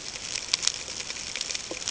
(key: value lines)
label: ambient
recorder: HydroMoth